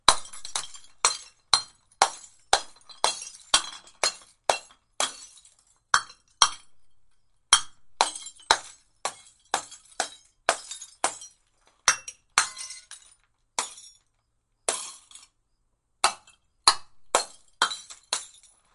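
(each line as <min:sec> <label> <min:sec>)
0:00.0 Glass breaking repeatedly with noticeable pauses. 0:18.7
0:00.0 Glass breaking. 0:05.1
0:05.9 Glass breaking. 0:06.6
0:07.5 Glass breaking. 0:12.9
0:13.6 Glass breaking. 0:13.8
0:14.7 Glass breaking. 0:15.0
0:16.1 Glass breaking. 0:18.3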